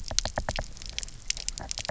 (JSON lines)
{"label": "biophony, knock", "recorder": "SoundTrap 300"}